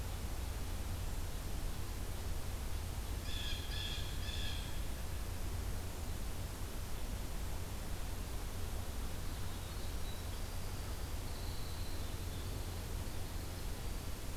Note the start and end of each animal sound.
[3.12, 4.75] Blue Jay (Cyanocitta cristata)
[9.24, 14.36] Winter Wren (Troglodytes hiemalis)

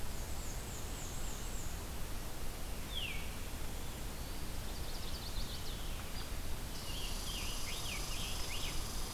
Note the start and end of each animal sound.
[0.00, 1.84] Black-and-white Warbler (Mniotilta varia)
[2.81, 3.28] Veery (Catharus fuscescens)
[4.33, 6.14] Chestnut-sided Warbler (Setophaga pensylvanica)
[6.63, 9.05] Scarlet Tanager (Piranga olivacea)
[6.72, 9.13] Red Squirrel (Tamiasciurus hudsonicus)

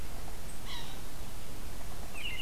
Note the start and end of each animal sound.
[0.63, 1.05] Yellow-bellied Sapsucker (Sphyrapicus varius)
[2.05, 2.41] American Robin (Turdus migratorius)

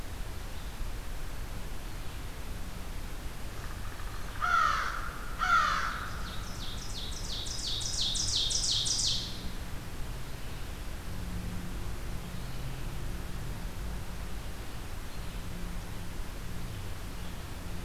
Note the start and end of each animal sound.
[0.00, 17.84] Red-eyed Vireo (Vireo olivaceus)
[4.15, 6.23] American Crow (Corvus brachyrhynchos)
[6.15, 9.92] Ovenbird (Seiurus aurocapilla)

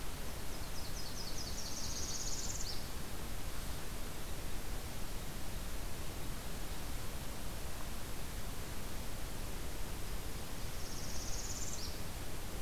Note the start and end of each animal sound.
[0.00, 2.91] Nashville Warbler (Leiothlypis ruficapilla)
[1.23, 2.86] Northern Parula (Setophaga americana)
[10.52, 12.06] Northern Parula (Setophaga americana)

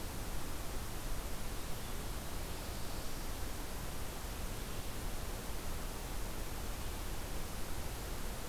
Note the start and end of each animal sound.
[1.31, 3.65] Black-throated Blue Warbler (Setophaga caerulescens)

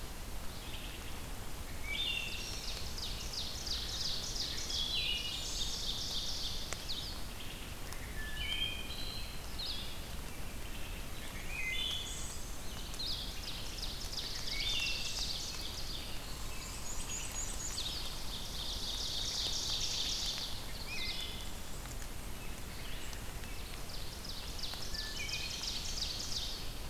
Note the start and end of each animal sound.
[0.40, 1.19] Wood Thrush (Hylocichla mustelina)
[1.56, 2.83] Wood Thrush (Hylocichla mustelina)
[2.18, 6.73] Ovenbird (Seiurus aurocapilla)
[4.34, 5.75] Wood Thrush (Hylocichla mustelina)
[7.75, 9.46] Wood Thrush (Hylocichla mustelina)
[9.47, 10.07] Blue-headed Vireo (Vireo solitarius)
[10.38, 12.53] Wood Thrush (Hylocichla mustelina)
[12.77, 13.52] Blue-headed Vireo (Vireo solitarius)
[13.22, 16.27] Ovenbird (Seiurus aurocapilla)
[14.47, 15.34] Wood Thrush (Hylocichla mustelina)
[16.18, 18.05] Black-and-white Warbler (Mniotilta varia)
[16.40, 19.41] Red Squirrel (Tamiasciurus hudsonicus)
[17.67, 18.16] Blue-headed Vireo (Vireo solitarius)
[18.33, 20.84] Ovenbird (Seiurus aurocapilla)
[20.67, 21.64] Wood Thrush (Hylocichla mustelina)
[23.82, 26.90] Ovenbird (Seiurus aurocapilla)
[24.97, 25.82] Wood Thrush (Hylocichla mustelina)

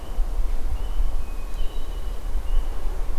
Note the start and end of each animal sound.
[1.12, 2.29] Hermit Thrush (Catharus guttatus)

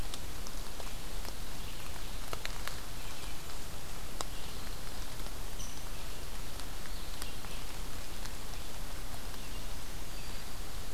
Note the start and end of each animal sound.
[0.00, 10.94] Red-eyed Vireo (Vireo olivaceus)
[5.43, 5.85] Rose-breasted Grosbeak (Pheucticus ludovicianus)

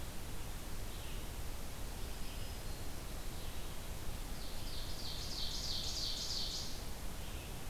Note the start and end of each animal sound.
[0.00, 7.69] Red-eyed Vireo (Vireo olivaceus)
[1.97, 3.16] Black-throated Green Warbler (Setophaga virens)
[4.27, 6.93] Ovenbird (Seiurus aurocapilla)

